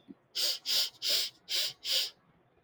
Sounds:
Sniff